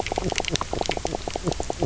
{"label": "biophony, knock croak", "recorder": "SoundTrap 300"}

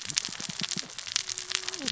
{"label": "biophony, cascading saw", "recorder": "SoundTrap 600 or HydroMoth"}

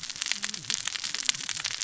{"label": "biophony, cascading saw", "recorder": "SoundTrap 600 or HydroMoth"}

